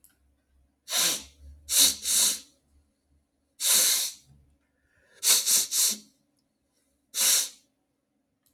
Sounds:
Sniff